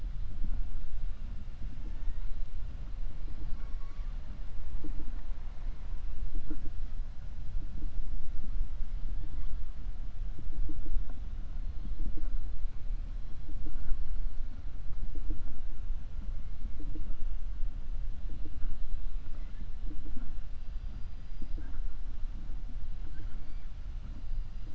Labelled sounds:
23.0	23.7	killer whale, 0.49 to 2.4 kHz

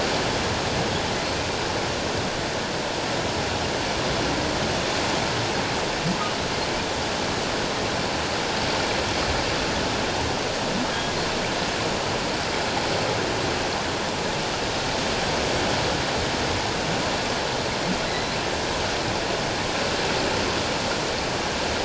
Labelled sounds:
18.1	18.4	humpback whale, 3.8 to 4.2 kHz

